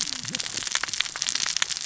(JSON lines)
{"label": "biophony, cascading saw", "recorder": "SoundTrap 600 or HydroMoth"}